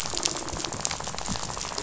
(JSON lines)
{"label": "biophony, rattle", "recorder": "SoundTrap 500"}